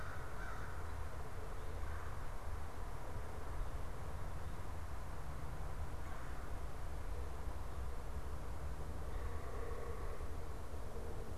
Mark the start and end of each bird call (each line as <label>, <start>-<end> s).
American Crow (Corvus brachyrhynchos), 0.0-1.0 s
Red-bellied Woodpecker (Melanerpes carolinus), 1.7-2.1 s
Red-bellied Woodpecker (Melanerpes carolinus), 5.8-6.5 s
unidentified bird, 8.9-10.6 s